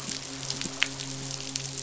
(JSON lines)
{"label": "biophony, midshipman", "recorder": "SoundTrap 500"}